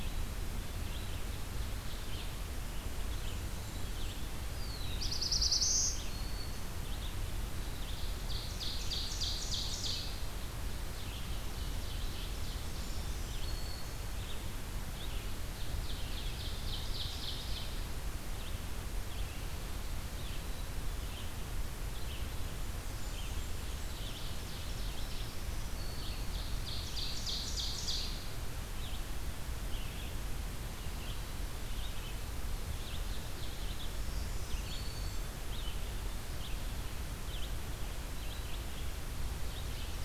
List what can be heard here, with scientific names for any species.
Vireo olivaceus, Setophaga fusca, Setophaga caerulescens, Setophaga virens, Seiurus aurocapilla